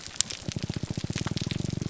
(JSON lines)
{"label": "biophony, grouper groan", "recorder": "SoundTrap 300"}